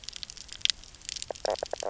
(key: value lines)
label: biophony, knock croak
recorder: SoundTrap 300